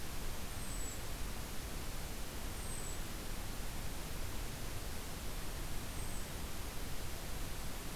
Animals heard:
Golden-crowned Kinglet (Regulus satrapa)

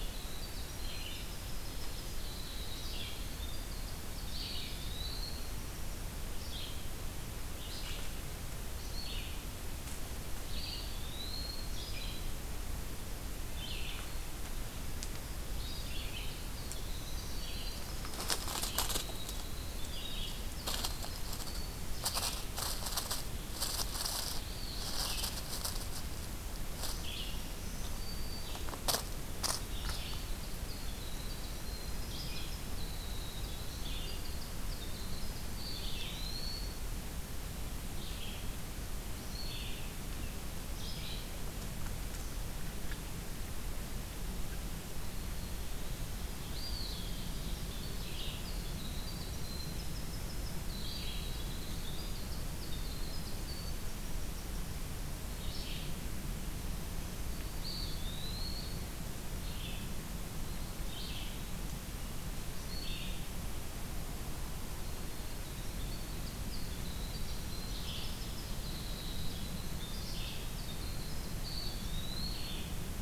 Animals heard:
Black-throated Green Warbler (Setophaga virens), Eastern Wood-Pewee (Contopus virens), Red-eyed Vireo (Vireo olivaceus), Winter Wren (Troglodytes hiemalis)

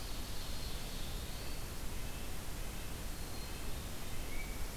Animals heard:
Tufted Titmouse (Baeolophus bicolor), Black-throated Blue Warbler (Setophaga caerulescens), Ovenbird (Seiurus aurocapilla), Black-capped Chickadee (Poecile atricapillus), Red-breasted Nuthatch (Sitta canadensis)

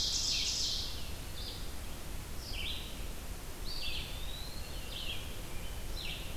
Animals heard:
Ovenbird (Seiurus aurocapilla), Red-eyed Vireo (Vireo olivaceus), Eastern Wood-Pewee (Contopus virens)

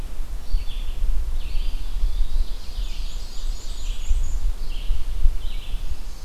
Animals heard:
Ovenbird (Seiurus aurocapilla), Red-eyed Vireo (Vireo olivaceus), Eastern Wood-Pewee (Contopus virens), Black-and-white Warbler (Mniotilta varia)

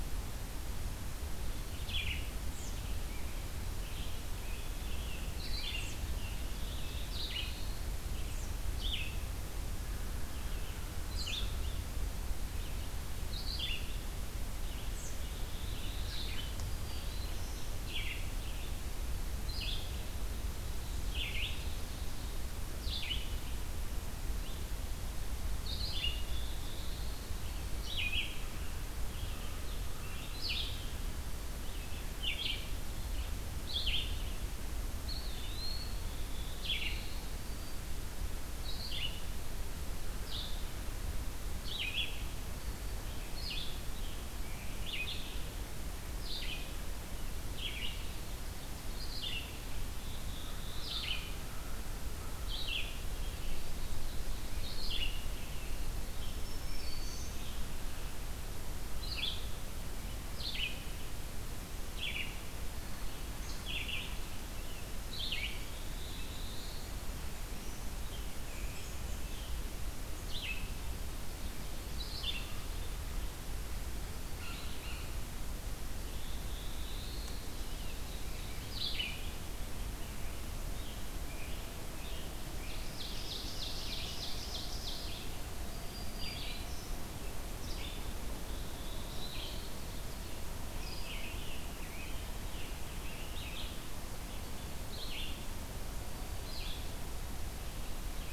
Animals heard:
Red-eyed Vireo (Vireo olivaceus), American Crow (Corvus brachyrhynchos), Ovenbird (Seiurus aurocapilla), Scarlet Tanager (Piranga olivacea), Blue Jay (Cyanocitta cristata), Black-throated Blue Warbler (Setophaga caerulescens), Eastern Wood-Pewee (Contopus virens), Blackburnian Warbler (Setophaga fusca), Black-throated Green Warbler (Setophaga virens), American Robin (Turdus migratorius)

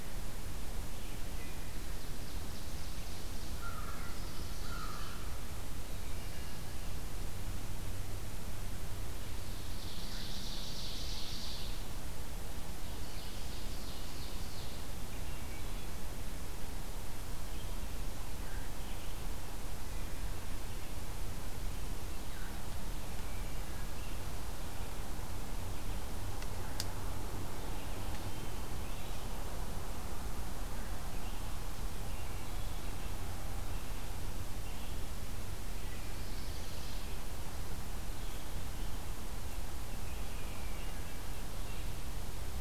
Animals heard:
American Crow (Corvus brachyrhynchos), Chestnut-sided Warbler (Setophaga pensylvanica), Ovenbird (Seiurus aurocapilla), Wood Thrush (Hylocichla mustelina)

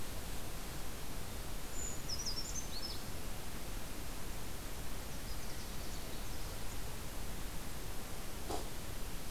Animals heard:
Brown Creeper (Certhia americana), Canada Warbler (Cardellina canadensis)

